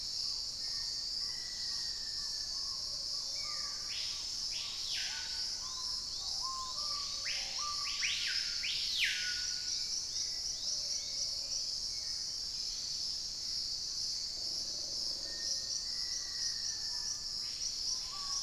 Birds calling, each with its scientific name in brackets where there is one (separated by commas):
Chestnut-winged Foliage-gleaner (Dendroma erythroptera), Dusky-capped Greenlet (Pachysylvia hypoxantha), Screaming Piha (Lipaugus vociferans), Purple-throated Fruitcrow (Querula purpurata), Hauxwell's Thrush (Turdus hauxwelli), unidentified bird, Plumbeous Pigeon (Patagioenas plumbea), Plain-throated Antwren (Isleria hauxwelli), Black-tailed Trogon (Trogon melanurus), Black-faced Antthrush (Formicarius analis)